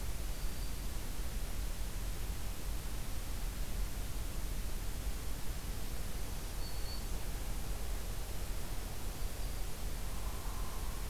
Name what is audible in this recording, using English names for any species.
Black-throated Green Warbler, Hairy Woodpecker